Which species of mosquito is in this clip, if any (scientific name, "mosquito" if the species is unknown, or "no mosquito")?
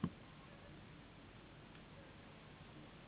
Anopheles gambiae s.s.